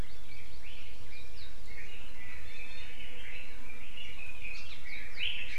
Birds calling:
Hawaii Amakihi (Chlorodrepanis virens), Red-billed Leiothrix (Leiothrix lutea), Iiwi (Drepanis coccinea)

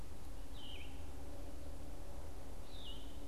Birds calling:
Yellow-throated Vireo (Vireo flavifrons)

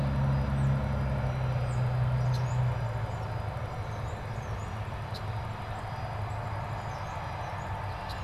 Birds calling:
Red-winged Blackbird (Agelaius phoeniceus), Tufted Titmouse (Baeolophus bicolor), unidentified bird

